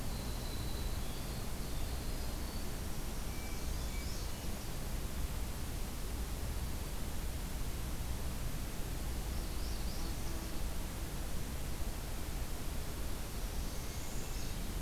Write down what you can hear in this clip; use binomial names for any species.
Troglodytes hiemalis, Setophaga americana, Catharus guttatus